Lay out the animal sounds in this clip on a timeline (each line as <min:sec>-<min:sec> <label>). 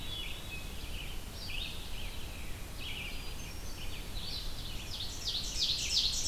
0:00.0-0:00.9 Hermit Thrush (Catharus guttatus)
0:00.0-0:06.3 Red-eyed Vireo (Vireo olivaceus)
0:02.9-0:04.1 Hermit Thrush (Catharus guttatus)
0:04.4-0:06.3 Ovenbird (Seiurus aurocapilla)